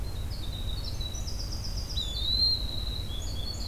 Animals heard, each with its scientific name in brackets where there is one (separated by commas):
Winter Wren (Troglodytes hiemalis), Eastern Wood-Pewee (Contopus virens)